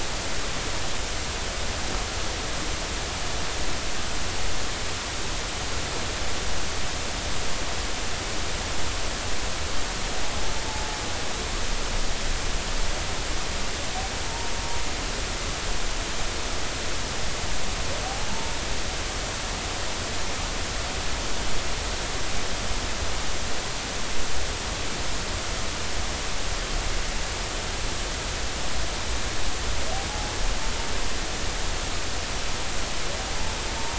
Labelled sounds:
14.2	14.5	humpback whale, 0.86 to 0.96 kHz

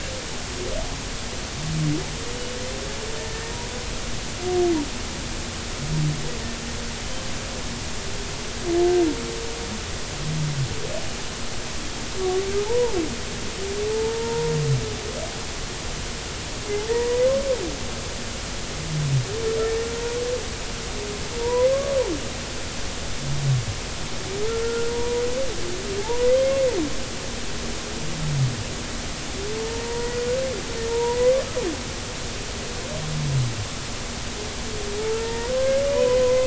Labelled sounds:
12.7	12.9	humpback whale, 0.83 to 1.0 kHz
13.9	14.5	humpback whale, 0.83 to 0.99 kHz
16.9	17.3	humpback whale, 0.90 to 2.1 kHz
21.4	21.9	humpback whale, 0.90 to 1.2 kHz
24.5	25.2	humpback whale, 0.90 to 1.5 kHz
26.0	26.3	humpback whale, 0.80 to 1.1 kHz
29.6	30.1	humpback whale, 0.86 to 0.99 kHz
30.9	31.4	humpback whale, 0.90 to 1.2 kHz
35.0	36.4	humpback whale, 0.86 to 2.0 kHz

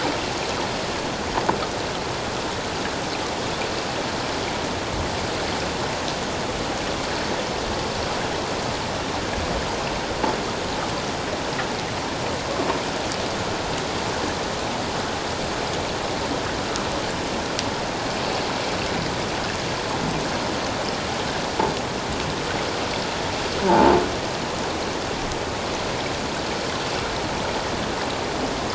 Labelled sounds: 23.7	23.9	croaking sound likely from a nearby submerged object, 0.78 to 0.97 kHz

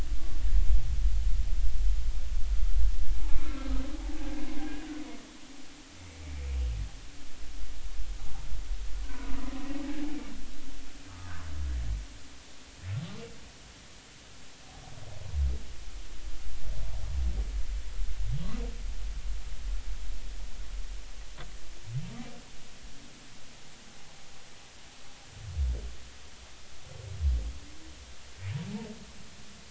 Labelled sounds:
3.9	4.7	humpback whale, 0.80 to 1.4 kHz
9.0	10.0	humpback whale, 0.80 to 1.6 kHz

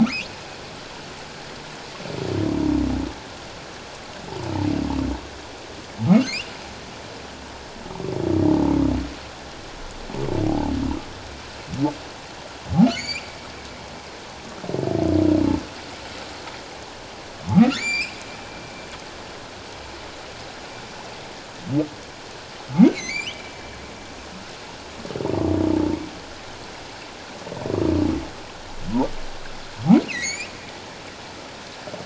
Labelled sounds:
1.3	1.6	humpback whale, 1.6 to 2.0 kHz
6.3	6.5	humpback whale, 2.0 to 3.1 kHz
10.4	10.7	humpback whale, 0.78 to 0.94 kHz
12.9	13.4	humpback whale, 2.0 to 7.2 kHz
17.5	18.1	humpback whale, 1.1 to 7.3 kHz
22.9	23.5	humpback whale, 2.0 to 4.3 kHz
30.1	30.5	humpback whale, 1.8 to 7.3 kHz

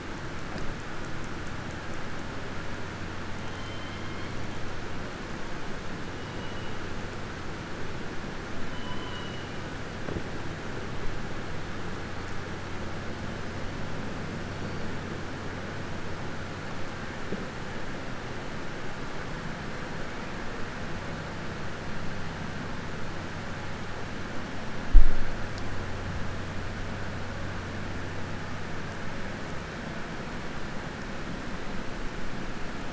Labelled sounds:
3.5	4.3	killer whale, southern resident, 2.1 to 4.1 kHz

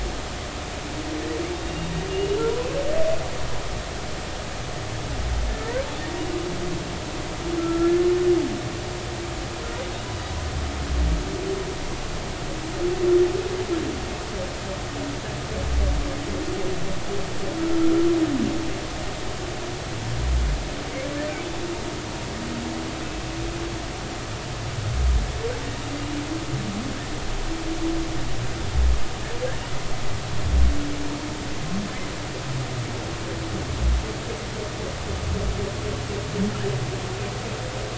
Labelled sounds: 2.1	2.7	humpback whale, 0.90 to 2.9 kHz
5.5	5.8	humpback whale, 1.7 to 2.0 kHz
7.6	8.1	humpback whale, 1.3 to 1.8 kHz

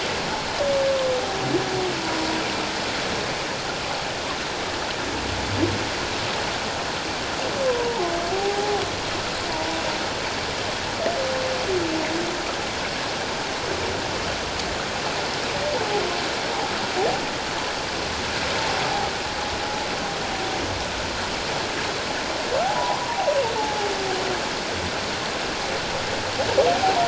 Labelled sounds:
2.0	2.3	humpback whale, 0.91 to 1.0 kHz
7.6	8.8	humpback whale, 0.78 to 1.1 kHz
22.7	23.9	humpback whale, 0.78 to 1.1 kHz

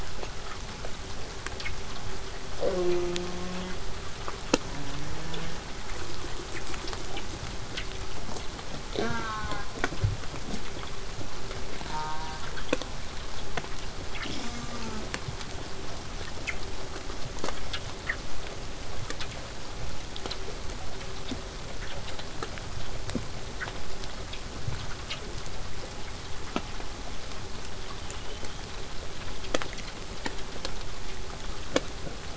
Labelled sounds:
2.5	3.8	killer whale, southern resident, J pod, call S04, 0.04 to 6.5 kHz
4.6	5.6	killer whale, southern resident, J pod, call S04, 0.15 to 3.5 kHz
8.9	9.8	killer whale, southern resident, J pod, call S04, 0.12 to 6.7 kHz
11.8	12.5	killer whale, southern resident, J pod, call S04, 0.50 to 6.3 kHz
14.2	15.1	killer whale, southern resident, J pod, call S04, 0.08 to 8.0 kHz
18.8	23.8	vessel noise, 0 to 8.0 kHz
28.0	28.8	killer whale, southern resident, whistle, 2.6 to 3.9 kHz

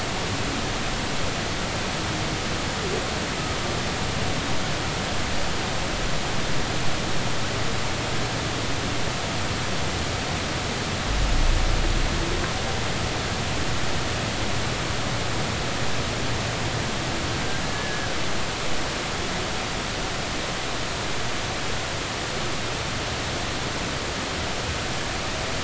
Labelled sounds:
17.6	18.2	humpback whale, 1.5 to 1.8 kHz

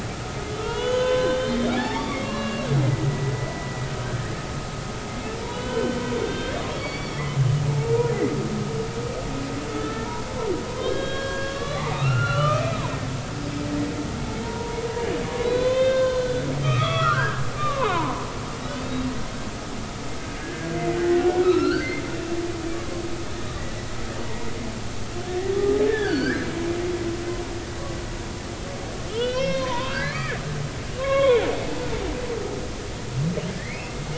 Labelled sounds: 0.6	3.8	humpback whale, 0.80 to 6.6 kHz
5.5	7.4	humpback whale, 1.4 to 4.7 kHz
7.7	7.9	humpback whale, 0.83 to 0.93 kHz
9.7	10.1	humpback whale, 1.3 to 1.9 kHz
10.8	12.8	humpback whale, 0.80 to 3.9 kHz
14.4	18.3	humpback whale, 0.80 to 4.2 kHz
20.4	21.9	humpback whale, 1.2 to 3.1 kHz
24.3	24.5	humpback whale, 0.86 to 1.1 kHz
25.9	26.5	humpback whale, 1.4 to 5.1 kHz
29.1	30.4	humpback whale, 0.90 to 6.0 kHz
31.0	31.9	humpback whale, 0.80 to 4.0 kHz
33.6	33.8	humpback whale, 1.7 to 2.3 kHz

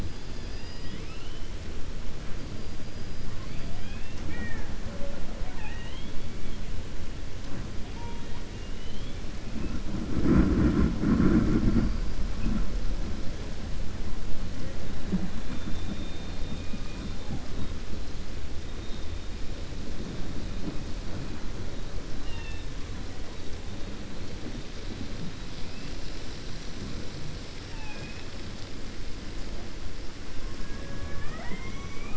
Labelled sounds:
0.0	1.5	killer whale, 1.7 to 5.2 kHz
5.3	6.2	killer whale, 0.54 to 3.8 kHz
8.5	9.2	killer whale, 2.8 to 4.2 kHz
27.6	28.3	killer whale, 0.56 to 3.5 kHz

